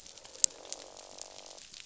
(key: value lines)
label: biophony, croak
recorder: SoundTrap 500